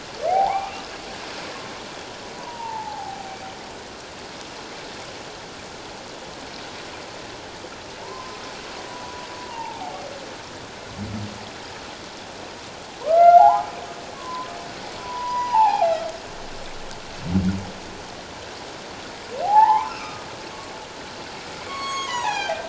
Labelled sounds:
0.3	0.8	humpback whale, 0.78 to 2.6 kHz
2.4	3.4	humpback whale, 0.78 to 1.1 kHz
8.0	8.4	humpback whale, 0.88 to 1.2 kHz
8.9	10.1	humpback whale, 0.78 to 1.0 kHz
13.0	13.7	humpback whale, 0.78 to 2.2 kHz
14.1	14.5	humpback whale, 0.94 to 1.2 kHz
15.0	16.0	humpback whale, 0.78 to 5.0 kHz
19.4	20.3	humpback whale, 0.78 to 2.8 kHz
21.6	22.6	humpback whale, 0.78 to 6.9 kHz

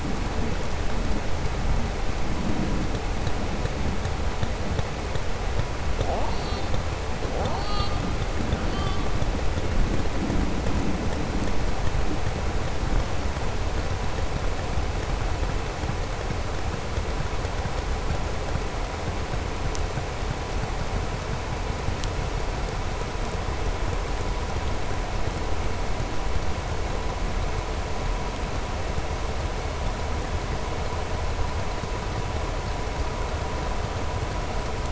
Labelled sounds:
6.2	6.7	killer whale, southern resident, 2.8 to 4.8 kHz

